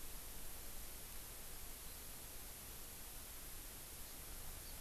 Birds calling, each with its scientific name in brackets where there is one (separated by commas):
Hawaii Amakihi (Chlorodrepanis virens)